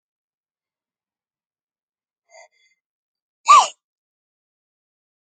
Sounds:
Sneeze